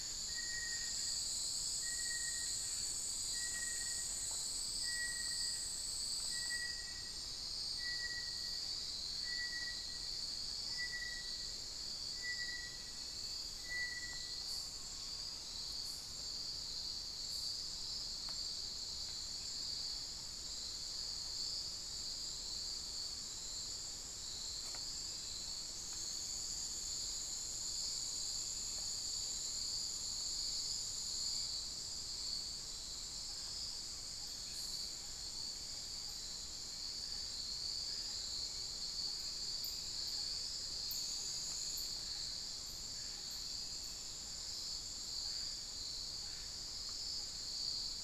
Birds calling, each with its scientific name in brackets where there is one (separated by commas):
Little Tinamou (Crypturellus soui), Amazonian Pygmy-Owl (Glaucidium hardyi)